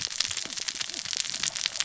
{"label": "biophony, cascading saw", "recorder": "SoundTrap 600 or HydroMoth"}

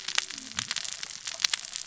{"label": "biophony, cascading saw", "recorder": "SoundTrap 600 or HydroMoth"}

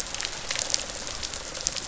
{"label": "biophony", "recorder": "SoundTrap 500"}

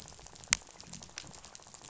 {"label": "biophony, rattle", "recorder": "SoundTrap 500"}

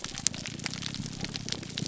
{"label": "biophony, grouper groan", "recorder": "SoundTrap 300"}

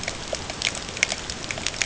{"label": "ambient", "recorder": "HydroMoth"}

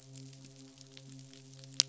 {"label": "biophony, midshipman", "recorder": "SoundTrap 500"}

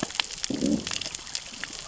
{"label": "biophony, growl", "recorder": "SoundTrap 600 or HydroMoth"}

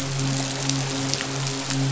{"label": "biophony, midshipman", "recorder": "SoundTrap 500"}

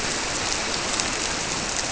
{"label": "biophony", "recorder": "SoundTrap 300"}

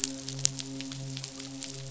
{"label": "biophony, midshipman", "recorder": "SoundTrap 500"}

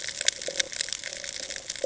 {"label": "ambient", "recorder": "HydroMoth"}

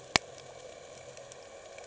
{"label": "anthrophony, boat engine", "recorder": "HydroMoth"}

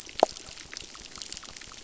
{"label": "biophony, crackle", "recorder": "SoundTrap 600"}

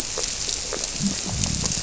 {"label": "biophony", "recorder": "SoundTrap 300"}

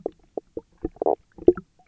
{"label": "biophony, knock croak", "recorder": "SoundTrap 300"}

